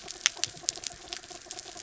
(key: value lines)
label: anthrophony, mechanical
recorder: SoundTrap 300